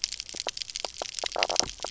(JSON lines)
{"label": "biophony, knock croak", "recorder": "SoundTrap 300"}